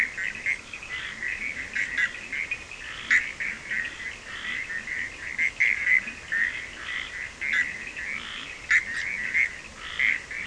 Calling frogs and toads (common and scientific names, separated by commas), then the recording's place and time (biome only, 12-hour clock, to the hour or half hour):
Leptodactylus latrans, Bischoff's tree frog (Boana bischoffi), Cochran's lime tree frog (Sphaenorhynchus surdus), Scinax perereca
Atlantic Forest, 1:30am